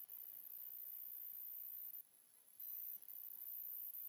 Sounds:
Sneeze